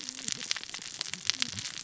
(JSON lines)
{"label": "biophony, cascading saw", "recorder": "SoundTrap 600 or HydroMoth"}